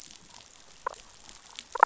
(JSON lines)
{"label": "biophony, damselfish", "recorder": "SoundTrap 500"}